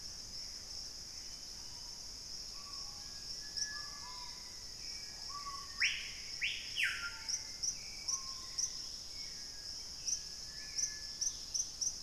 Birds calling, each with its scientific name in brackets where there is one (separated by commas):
Screaming Piha (Lipaugus vociferans), unidentified bird, Hauxwell's Thrush (Turdus hauxwelli), Black-faced Antthrush (Formicarius analis), Purple-throated Euphonia (Euphonia chlorotica), Gray Antbird (Cercomacra cinerascens), Dusky-capped Greenlet (Pachysylvia hypoxantha)